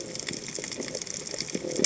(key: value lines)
label: biophony
recorder: HydroMoth